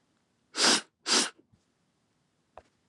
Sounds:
Sniff